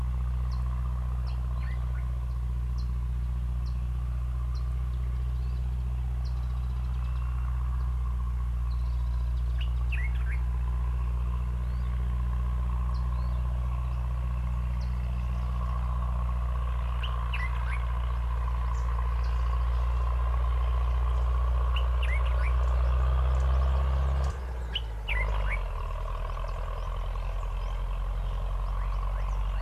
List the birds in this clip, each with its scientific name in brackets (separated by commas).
Common Bulbul (Pycnonotus barbatus)